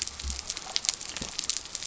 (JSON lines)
{"label": "biophony", "recorder": "SoundTrap 300"}